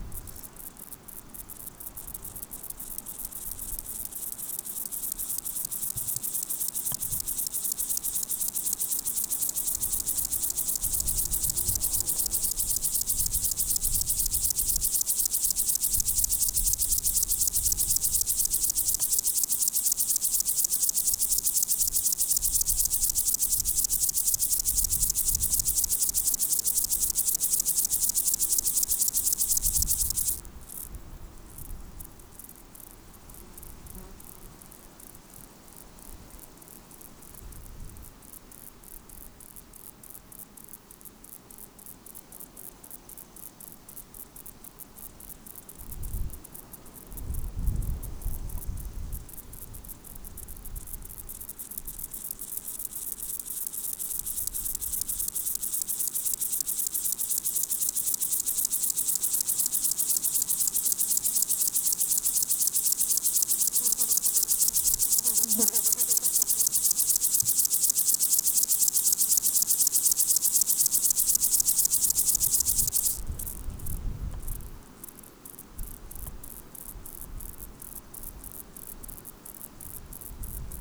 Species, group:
Chorthippus apricarius
Orthoptera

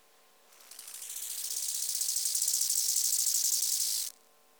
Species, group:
Chorthippus biguttulus
Orthoptera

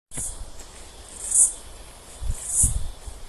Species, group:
Aleeta curvicosta
Cicadidae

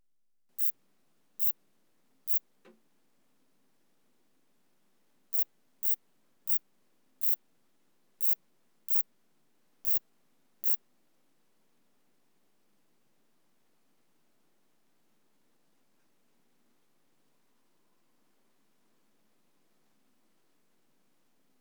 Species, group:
Pseudosubria bispinosa
Orthoptera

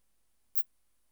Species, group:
Phaneroptera falcata
Orthoptera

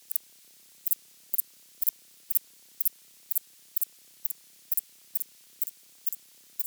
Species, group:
Thyreonotus corsicus
Orthoptera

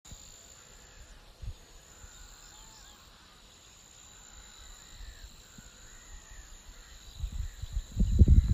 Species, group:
Pteronemobius heydenii
Orthoptera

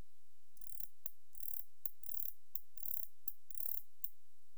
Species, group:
Barbitistes ocskayi
Orthoptera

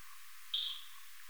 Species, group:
Leptophyes punctatissima
Orthoptera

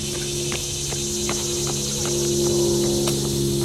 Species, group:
Neotibicen tibicen
Cicadidae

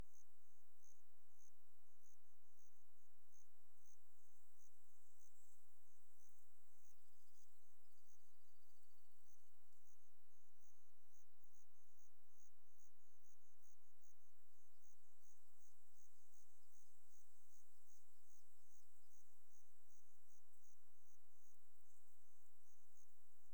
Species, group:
Eumodicogryllus theryi
Orthoptera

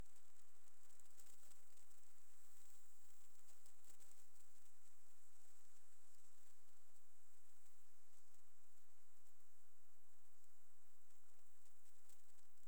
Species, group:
Leptophyes punctatissima
Orthoptera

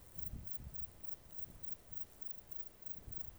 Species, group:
Metrioptera brachyptera
Orthoptera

